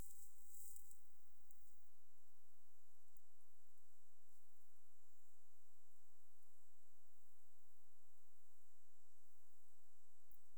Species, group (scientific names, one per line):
Chorthippus biguttulus
Orthoptera